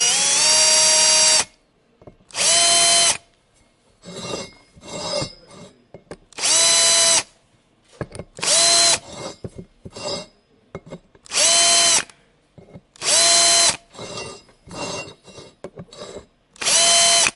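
The high-pitched whirring of an electronic screwdriver intensifies gradually. 0.0 - 1.8
Thumping noise muffled. 1.9 - 2.2
A loud, high-pitched whirring sound of an electronic screwdriver. 2.2 - 3.6
A quiet metallic scraping sound. 3.8 - 6.3
A loud, high-pitched whirring sound of an electronic screwdriver. 6.3 - 7.7
Metallic thumping sound muffled. 7.8 - 8.3
A loud, high-pitched whirring sound of an electronic screwdriver. 8.4 - 9.0
Metal scraping over metal twice quickly. 9.0 - 10.4
Metallic thumping sound muffled. 10.7 - 11.2
A loud, high-pitched whirring sound of an electronic screwdriver. 11.2 - 12.3
Quiet scraping. 12.5 - 12.9
A loud, high-pitched whirring sound of an electronic screwdriver. 12.9 - 13.9
Metal scraping over metal in quick succession four times. 13.9 - 16.5
A loud, high-pitched whirring sound of an electronic screwdriver. 16.5 - 17.4

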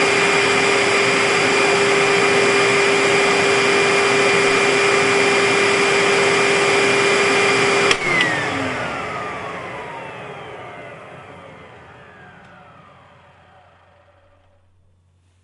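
A machine hums and whirrs electrically. 0.1 - 7.7
An engine halts followed by a metallic clicking sound. 7.8 - 12.2

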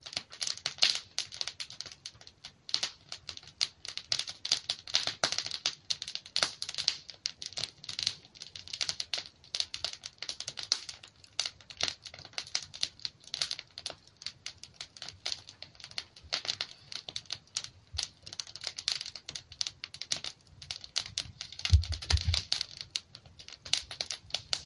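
A campfire crackling continuously. 0.2 - 24.7

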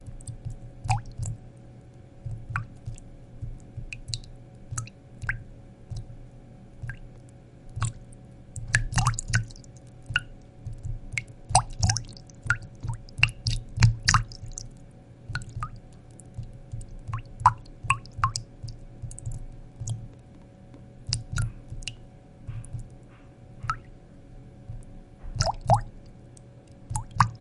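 Water drips inconsistently with irregular splashes in between. 0.0 - 27.4

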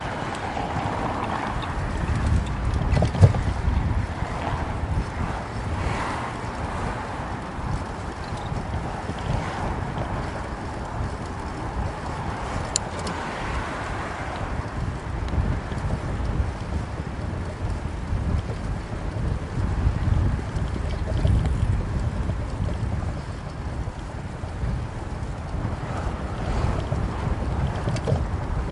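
Continuous sounds of cars passing by on a heavily trafficked street. 0.0 - 28.7

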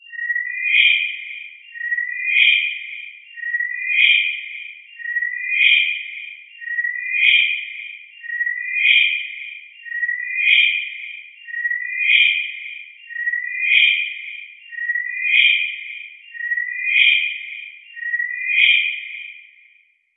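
A metallic siren sounding in an echoing environment. 0.0 - 20.2

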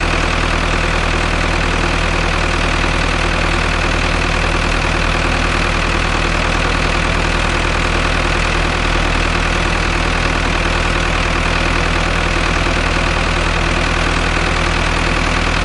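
A tractor motor runs steadily at low or idle revolutions. 0.0 - 15.6

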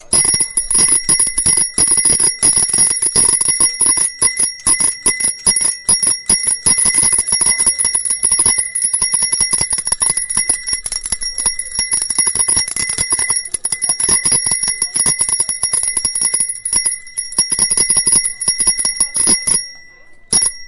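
Soft mumbling in the background. 0.0 - 20.7
An unrhythmic bicycle bell ringing. 0.1 - 4.1
Rhythmic ringing of a bicycle bell. 4.2 - 6.6
A bicycle bell ringing wildly. 6.6 - 19.7
A single ring of a bicycle bell. 20.3 - 20.7

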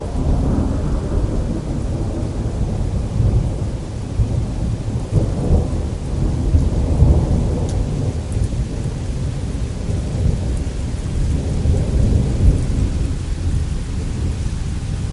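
Rain falling outdoors with faint thunder in the background. 0.0 - 15.1

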